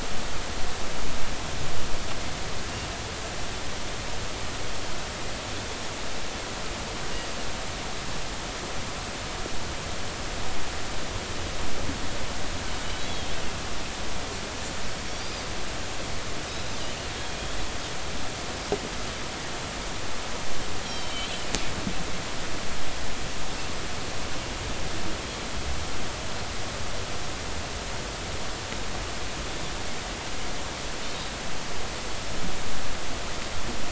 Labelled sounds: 13.1	13.4	Pacific white-sided dolphin, 3.1 to 3.5 kHz
15.2	15.5	Pacific white-sided dolphin, 4.6 to 5.0 kHz
20.8	21.2	Pacific white-sided dolphin, 3.0 to 5.7 kHz

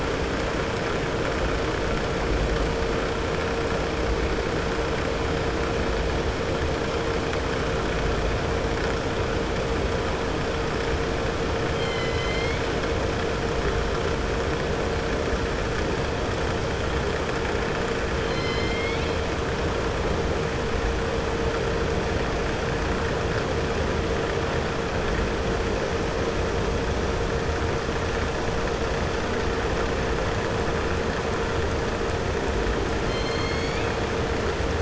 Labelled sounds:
11.7	12.6	killer whale, southern resident, 2.0 to 5.2 kHz
33.0	33.9	killer whale, southern resident, 2.1 to 6.9 kHz

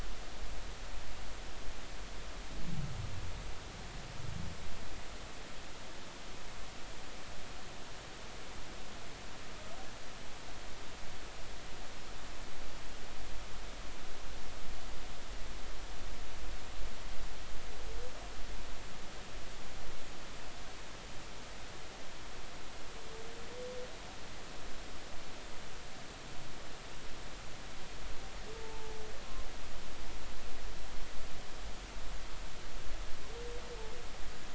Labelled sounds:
29.5	30.0	humpback whale, 0.83 to 0.93 kHz

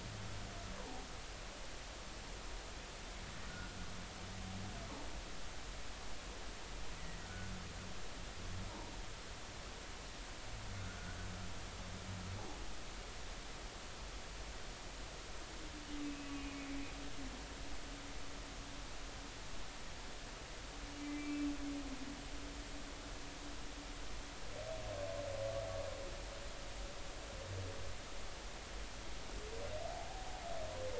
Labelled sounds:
3.5	3.7	humpback whale, 1.3 to 1.5 kHz
7.2	7.5	humpback whale, 1.4 to 1.6 kHz
16.0	16.6	humpback whale, 2.4 to 2.7 kHz
21.1	21.5	humpback whale, 2.2 to 2.7 kHz

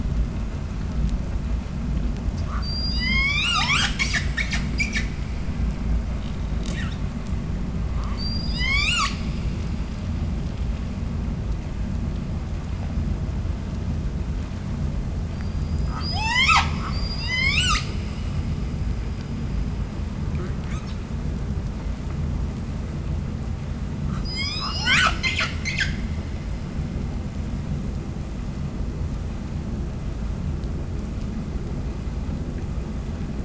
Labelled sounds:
2.4	5.1	killer whale, 0.38 to 8.0 kHz
6.6	7.1	killer whale, 0.93 to 8.0 kHz
7.9	9.2	killer whale, 0.73 to 8.0 kHz
10.3	14.9	vessel noise, 0 to 8.0 kHz
15.2	17.9	killer whale, 0.44 to 8.0 kHz
24.1	26.1	killer whale, 0.47 to 8.0 kHz

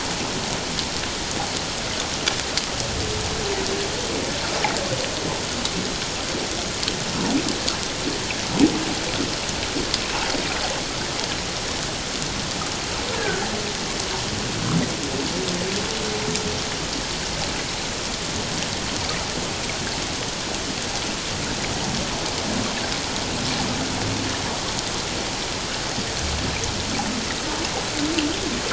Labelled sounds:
13.1	13.4	humpback whale, 1.4 to 1.8 kHz

